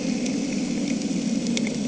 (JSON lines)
{"label": "anthrophony, boat engine", "recorder": "HydroMoth"}